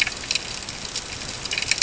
{"label": "ambient", "recorder": "HydroMoth"}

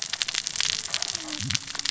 {"label": "biophony, cascading saw", "recorder": "SoundTrap 600 or HydroMoth"}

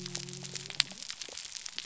{"label": "biophony", "recorder": "SoundTrap 300"}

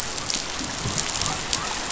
{"label": "biophony", "recorder": "SoundTrap 500"}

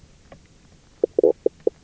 {"label": "biophony, knock croak", "recorder": "SoundTrap 300"}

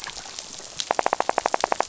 {"label": "biophony, rattle", "recorder": "SoundTrap 500"}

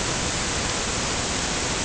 {"label": "ambient", "recorder": "HydroMoth"}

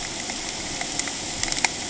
{"label": "ambient", "recorder": "HydroMoth"}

